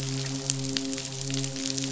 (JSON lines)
{"label": "biophony, midshipman", "recorder": "SoundTrap 500"}